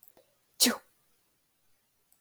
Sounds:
Sneeze